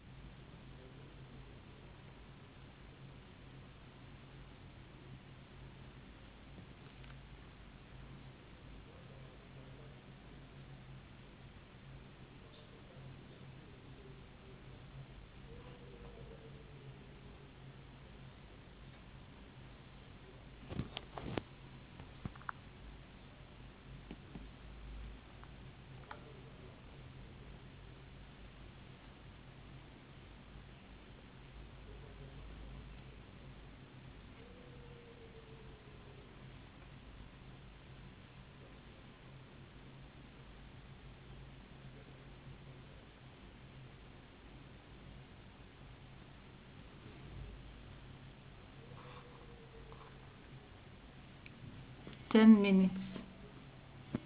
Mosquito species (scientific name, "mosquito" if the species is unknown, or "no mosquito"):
no mosquito